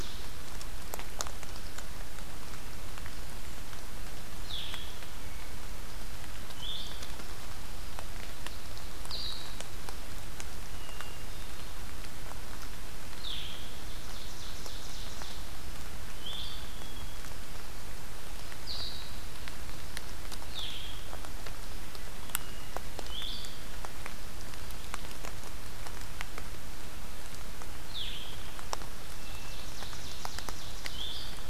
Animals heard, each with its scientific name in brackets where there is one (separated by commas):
Hermit Thrush (Catharus guttatus), Blue-headed Vireo (Vireo solitarius), Ovenbird (Seiurus aurocapilla)